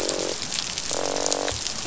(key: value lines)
label: biophony, croak
recorder: SoundTrap 500